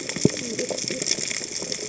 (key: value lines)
label: biophony, cascading saw
recorder: HydroMoth